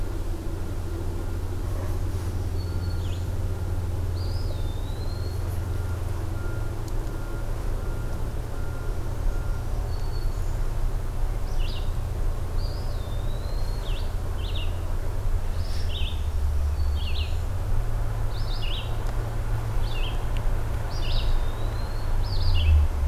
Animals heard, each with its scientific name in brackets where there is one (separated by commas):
Red-eyed Vireo (Vireo olivaceus), Black-throated Green Warbler (Setophaga virens), Eastern Wood-Pewee (Contopus virens)